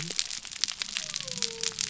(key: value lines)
label: biophony
recorder: SoundTrap 300